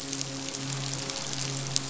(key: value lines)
label: biophony, midshipman
recorder: SoundTrap 500